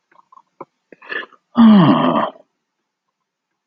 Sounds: Sigh